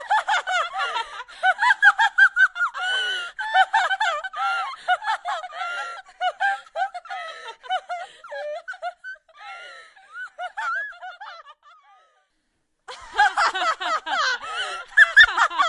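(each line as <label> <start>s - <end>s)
A group of women laughing with discontinuous high-pitched sounds. 0.0s - 12.3s
A group of women laughing with discontinuous high-pitched sounds. 12.9s - 15.7s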